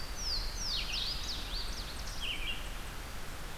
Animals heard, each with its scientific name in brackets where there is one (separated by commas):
Louisiana Waterthrush (Parkesia motacilla), Red-eyed Vireo (Vireo olivaceus)